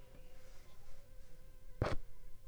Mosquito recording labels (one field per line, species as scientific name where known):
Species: Anopheles funestus s.l.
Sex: female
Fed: unfed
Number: one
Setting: cup